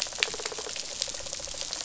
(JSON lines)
{"label": "biophony, rattle response", "recorder": "SoundTrap 500"}